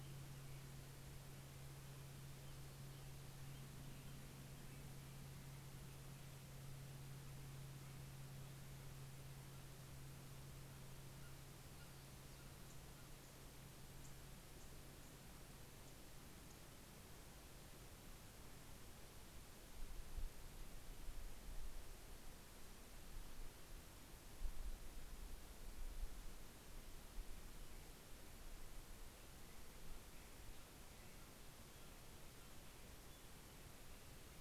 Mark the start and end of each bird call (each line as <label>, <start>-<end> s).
American Robin (Turdus migratorius), 0.0-4.8 s
Steller's Jay (Cyanocitta stelleri), 9.3-13.7 s